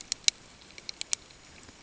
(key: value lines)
label: ambient
recorder: HydroMoth